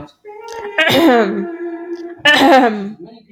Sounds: Throat clearing